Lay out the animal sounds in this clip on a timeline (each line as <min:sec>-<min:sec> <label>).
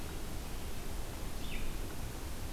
0:01.2-0:02.5 Red-eyed Vireo (Vireo olivaceus)